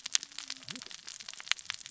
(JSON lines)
{"label": "biophony, cascading saw", "recorder": "SoundTrap 600 or HydroMoth"}